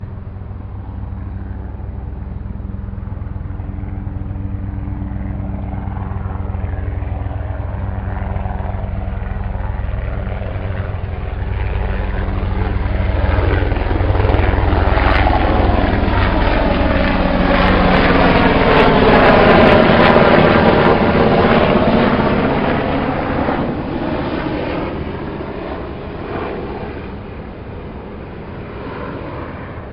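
A helicopter taking off. 0.0 - 11.2
A helicopter is flying overhead. 11.2 - 29.9

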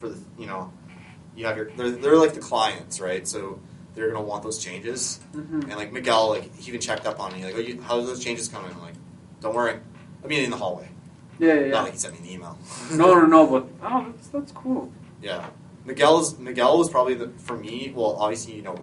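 Two men are speaking in English. 0.0 - 18.8

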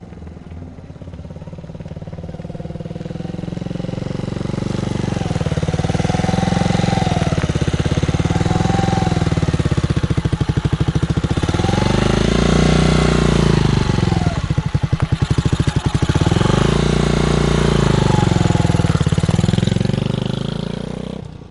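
A motorcycle engine runs irregularly. 0.1 - 21.5
A motorcycle is moving away. 19.4 - 21.5

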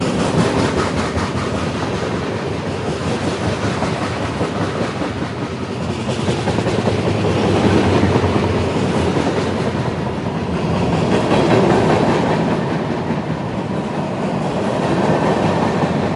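Continuous sounds of moving train wagons repeating in a vast space. 0.0 - 16.2

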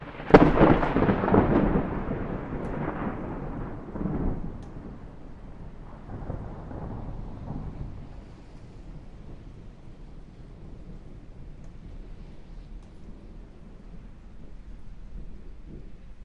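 Thunder rolls. 0.0 - 12.7
Rain falls lightly in the background. 10.0 - 16.2

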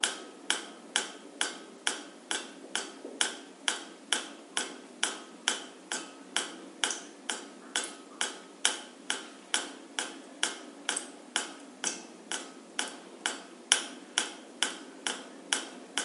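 A metallic thumping sound repeats rhythmically. 0.0 - 16.0

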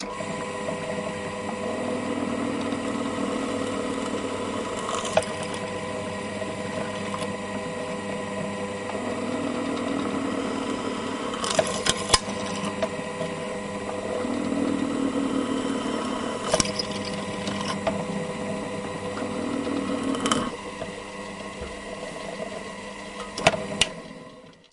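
A motor of a nearby drill runs calmly. 0.0 - 24.0
A drill is drilling through wood nearby. 1.6 - 5.3
A drill is drilling through wood nearby. 9.0 - 12.3
A drill is drilling through wood nearby. 14.0 - 16.7
A drill is drilling through wood nearby. 19.0 - 20.5
A nearby switch clicks as it is pressed. 23.7 - 23.9

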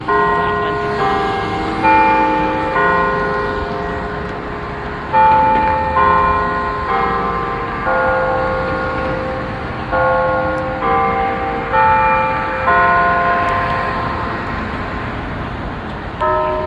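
A melodic church bell ringing from a tower. 0.1 - 16.7

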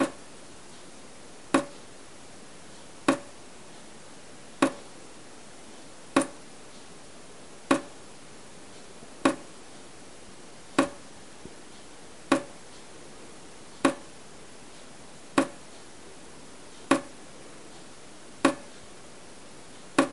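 A hammer is thumping rhythmically nearby. 0.0 - 20.1

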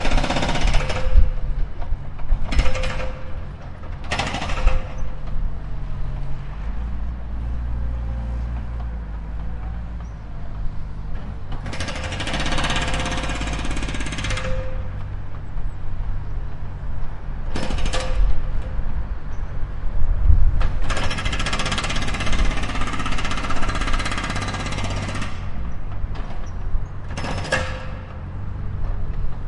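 A metallic drill is operating. 0.0 - 1.3
Vehicles driving faintly. 0.0 - 29.5
A metallic drill is operating. 2.4 - 3.4
A metallic drill is operating. 4.1 - 5.0
A metallic drill is operating. 11.7 - 14.7
A metallic drill is operating. 17.4 - 18.5
A metallic drill is operating. 20.8 - 25.4
A metallic drill is operating. 27.0 - 27.8

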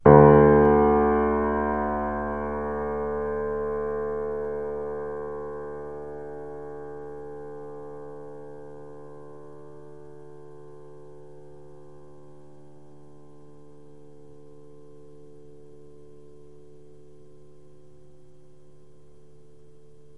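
A single long and loud piano note gradually becomes softer until it fades into silence. 0.0 - 20.2

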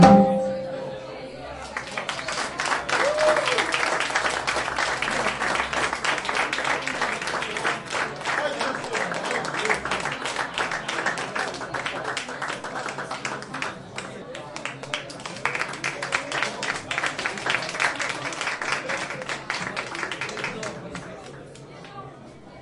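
A guitar string is plucked loudly. 0.0 - 1.1
Several people are talking muffled. 0.7 - 22.6
The crowd claps loudly with varying intensity. 1.7 - 21.6
A man screams loudly and cheers. 3.0 - 3.7

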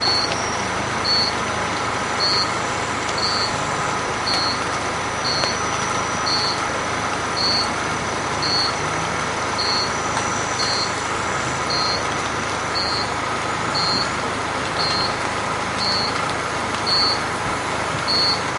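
Quiet rain falling outdoors. 0.0 - 18.6
Crickets chirping rhythmically outdoors. 0.0 - 18.6
A loud electric generator runs continuously outdoors. 0.0 - 18.6
A car engine fades away. 9.6 - 18.6

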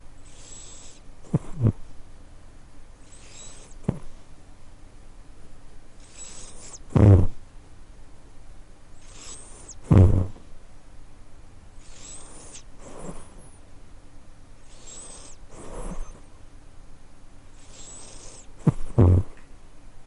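A cat is snoring softly with gentle breaths and occasional drowsy purring, creating a calm and peaceful sound. 1.3 - 1.8
A cat is snoring softly with gentle breaths and occasional drowsy purring, creating a calm and peaceful sound. 3.8 - 4.0
A cat is snoring softly with gentle breaths and occasional drowsy purring, creating a calm and peaceful sound. 6.9 - 7.4
A cat is snoring softly with gentle breaths and occasional drowsy purring, creating a calm and peaceful sound. 9.9 - 10.3
A cat is snoring softly with gentle breaths and occasional drowsy purring, creating a calm and peaceful sound. 18.6 - 19.3

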